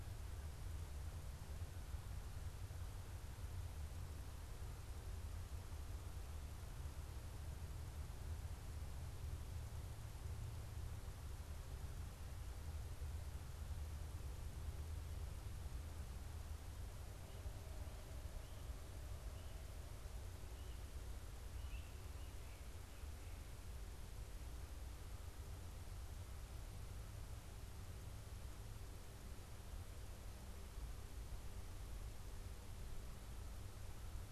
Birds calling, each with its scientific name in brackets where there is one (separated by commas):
Great Crested Flycatcher (Myiarchus crinitus)